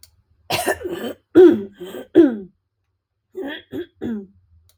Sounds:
Throat clearing